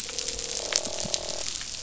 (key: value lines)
label: biophony, croak
recorder: SoundTrap 500